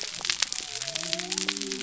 {"label": "biophony", "recorder": "SoundTrap 300"}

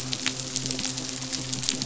{"label": "biophony, midshipman", "recorder": "SoundTrap 500"}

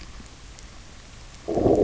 {"label": "biophony, low growl", "recorder": "SoundTrap 300"}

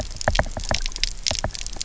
{"label": "biophony, knock", "recorder": "SoundTrap 300"}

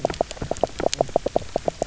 {"label": "biophony, knock croak", "recorder": "SoundTrap 300"}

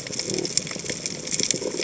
{"label": "biophony", "recorder": "HydroMoth"}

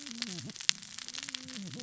{"label": "biophony, cascading saw", "recorder": "SoundTrap 600 or HydroMoth"}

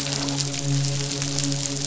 {"label": "biophony, midshipman", "recorder": "SoundTrap 500"}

